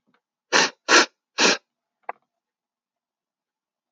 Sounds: Sniff